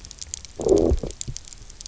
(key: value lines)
label: biophony, low growl
recorder: SoundTrap 300